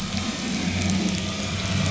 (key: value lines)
label: anthrophony, boat engine
recorder: SoundTrap 500